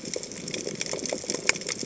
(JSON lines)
{"label": "biophony, chatter", "recorder": "HydroMoth"}